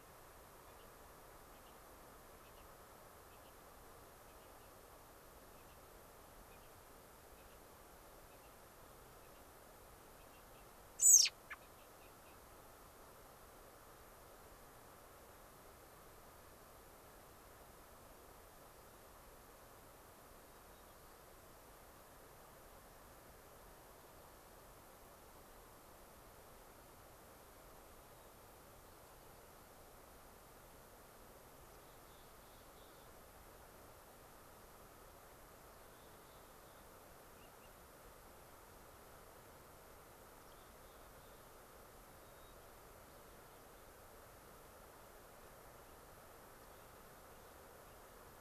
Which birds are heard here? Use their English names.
American Robin, unidentified bird, Mountain Chickadee, White-crowned Sparrow